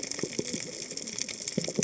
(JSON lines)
{"label": "biophony, cascading saw", "recorder": "HydroMoth"}